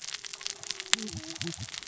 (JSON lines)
{"label": "biophony, cascading saw", "recorder": "SoundTrap 600 or HydroMoth"}